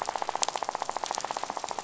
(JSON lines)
{"label": "biophony, rattle", "recorder": "SoundTrap 500"}